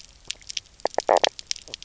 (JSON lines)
{"label": "biophony, knock croak", "recorder": "SoundTrap 300"}